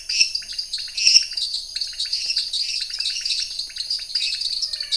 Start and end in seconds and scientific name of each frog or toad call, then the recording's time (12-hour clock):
0.0	1.5	Dendropsophus minutus
0.0	4.9	Dendropsophus nanus
0.0	4.9	Leptodactylus podicipinus
9:00pm